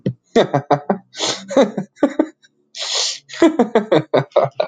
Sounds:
Laughter